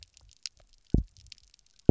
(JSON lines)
{"label": "biophony, double pulse", "recorder": "SoundTrap 300"}